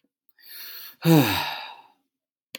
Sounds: Sigh